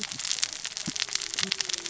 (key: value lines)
label: biophony, cascading saw
recorder: SoundTrap 600 or HydroMoth